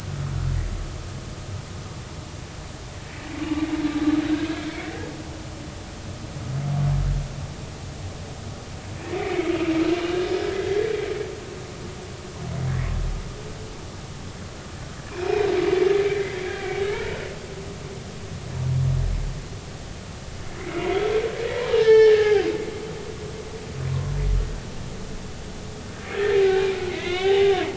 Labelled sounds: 9.2	9.8	humpback whale, 1.9 to 2.9 kHz
10.3	10.9	humpback whale, 1.6 to 2.1 kHz
15.1	15.5	humpback whale, 2.3 to 2.6 kHz
16.8	17.1	humpback whale, 1.2 to 1.5 kHz
20.6	21.0	humpback whale, 1.9 to 2.3 kHz
21.8	22.5	humpback whale, 0.80 to 5.4 kHz
23.9	24.2	humpback whale, 0.99 to 1.2 kHz
26.9	27.7	humpback whale, 0.86 to 3.1 kHz

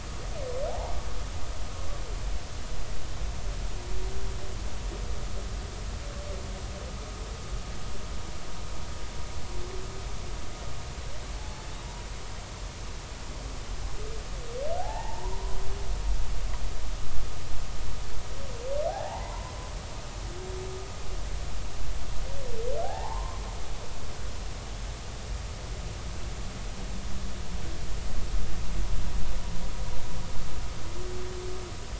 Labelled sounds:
0.7	0.9	humpback whale, 0.80 to 0.99 kHz
11.4	11.7	humpback whale, 0.80 to 0.90 kHz
14.8	16.1	humpback whale, 0.80 to 2.0 kHz
18.9	19.5	humpback whale, 0.80 to 2.1 kHz
23.8	24.4	humpback whale, 0.80 to 1.1 kHz

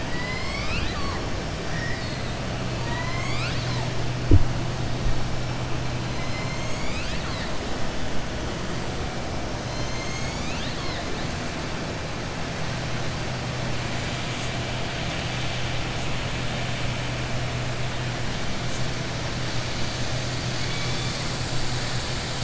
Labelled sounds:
0.0	1.2	killer whale, southern resident, 1.0 to 5.6 kHz
2.7	3.9	killer whale, southern resident, 0.96 to 7.9 kHz
6.1	7.5	killer whale, southern resident, 1.2 to 7.9 kHz

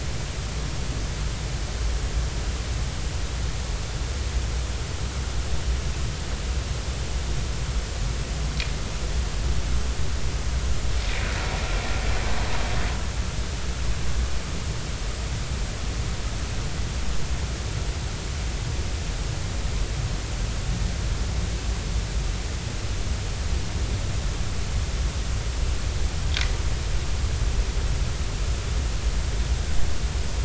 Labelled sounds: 11.0	11.3	vessel noise, 2.3 to 2.6 kHz

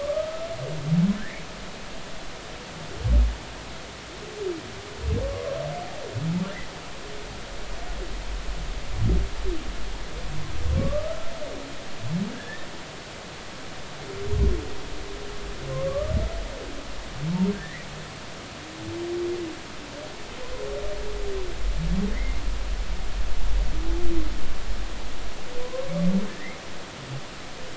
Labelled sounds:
0.0	1.4	humpback whale, 1.1 to 2.4 kHz
10.8	11.3	humpback whale, 1.1 to 1.4 kHz
12.3	12.7	humpback whale, 1.5 to 1.9 kHz
15.9	16.1	humpback whale, 1.1 to 1.2 kHz
17.5	17.9	humpback whale, 1.5 to 2.2 kHz
22.1	22.4	humpback whale, 1.8 to 2.2 kHz
25.6	25.9	humpback whale, 0.93 to 1.1 kHz
26.4	26.6	humpback whale, 1.7 to 2.2 kHz

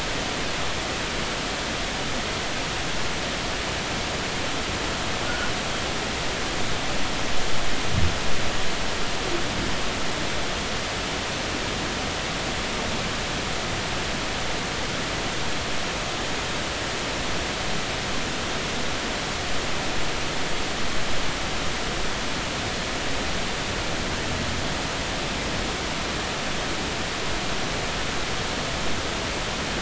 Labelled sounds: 5.3	5.5	humpback whale, 1.4 to 1.5 kHz

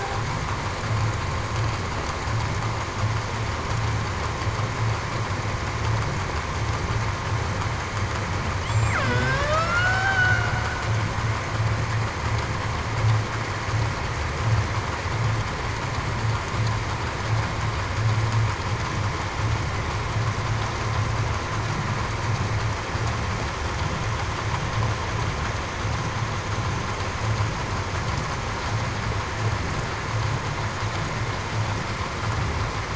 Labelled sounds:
9.0	10.5	killer whale, Bigg's (transient), 1.2 to 3.0 kHz

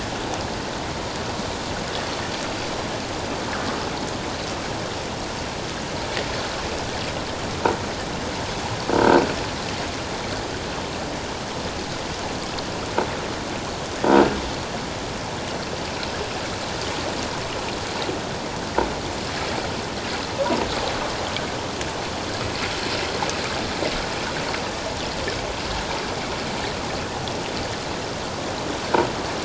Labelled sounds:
8.9	9.2	croaking sound likely from a nearby submerged object, 1.4 to 1.6 kHz

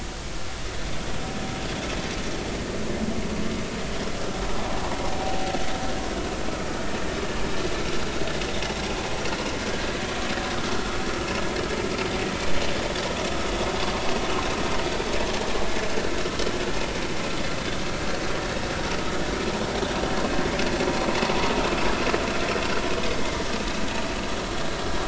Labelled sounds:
4.7	4.9	vessel noise, 0.80 to 1.1 kHz

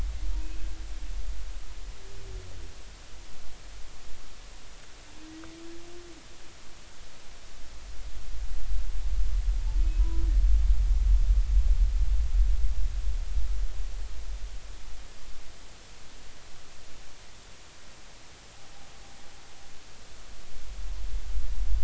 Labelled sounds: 0.4	0.7	humpback whale, 2.5 to 2.6 kHz
9.8	10.3	humpback whale, 0.93 to 2.6 kHz

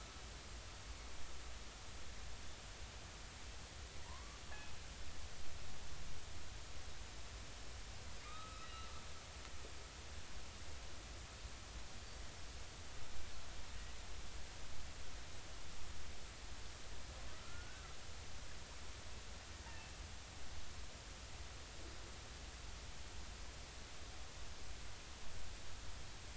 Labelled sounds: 0.4	0.7	killer whale, northern resident, 1.1 to 1.4 kHz
4.1	4.4	killer whale, northern resident, 0.86 to 1.2 kHz
8.3	8.9	killer whale, northern resident, 1.1 to 4.0 kHz
17.3	17.9	killer whale, northern resident, 1.2 to 1.6 kHz
19.7	19.9	killer whale, northern resident, 2.6 to 2.8 kHz

